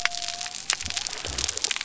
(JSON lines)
{"label": "biophony", "recorder": "SoundTrap 300"}